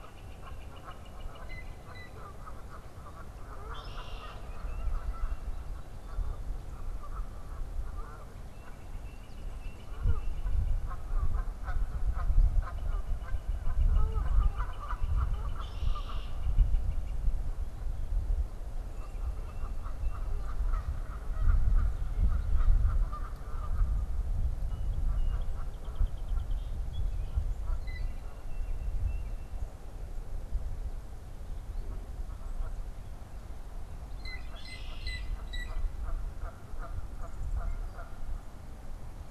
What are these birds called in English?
Northern Flicker, Canada Goose, Blue Jay, Red-winged Blackbird, Tufted Titmouse, Song Sparrow